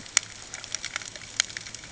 {"label": "ambient", "recorder": "HydroMoth"}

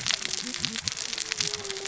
{"label": "biophony, cascading saw", "recorder": "SoundTrap 600 or HydroMoth"}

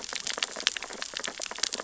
{"label": "biophony, sea urchins (Echinidae)", "recorder": "SoundTrap 600 or HydroMoth"}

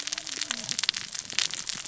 {"label": "biophony, cascading saw", "recorder": "SoundTrap 600 or HydroMoth"}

